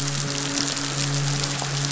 {"label": "biophony, midshipman", "recorder": "SoundTrap 500"}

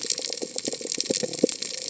{"label": "biophony", "recorder": "HydroMoth"}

